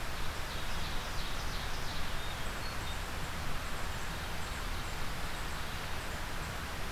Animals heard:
Ovenbird (Seiurus aurocapilla)
Hermit Thrush (Catharus guttatus)

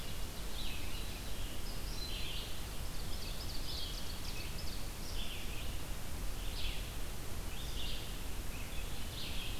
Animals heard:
unidentified call
Ovenbird (Seiurus aurocapilla)
Red-eyed Vireo (Vireo olivaceus)

